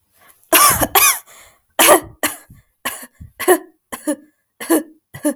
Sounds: Cough